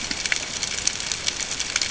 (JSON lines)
{"label": "ambient", "recorder": "HydroMoth"}